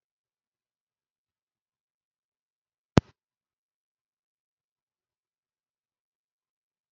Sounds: Cough